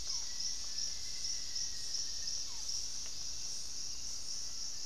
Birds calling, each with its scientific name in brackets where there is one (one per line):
Barred Forest-Falcon (Micrastur ruficollis)
Black-faced Antthrush (Formicarius analis)